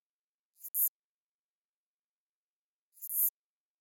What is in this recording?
Synephippius obvius, an orthopteran